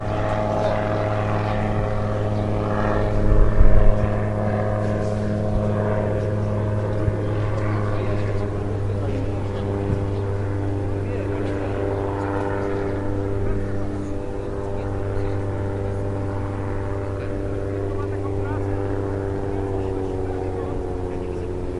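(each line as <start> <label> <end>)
0.0 An airplane takes off. 21.8
0.0 People talking in the distance. 21.8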